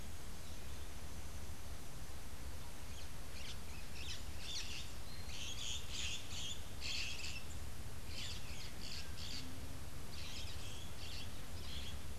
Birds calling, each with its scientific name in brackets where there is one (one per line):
Crimson-fronted Parakeet (Psittacara finschi)